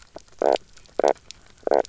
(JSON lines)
{"label": "biophony, knock croak", "recorder": "SoundTrap 300"}